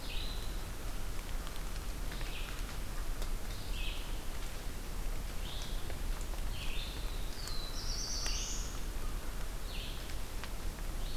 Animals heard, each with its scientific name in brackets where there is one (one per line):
Black-throated Blue Warbler (Setophaga caerulescens)
Red-eyed Vireo (Vireo olivaceus)